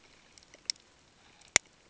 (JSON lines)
{"label": "ambient", "recorder": "HydroMoth"}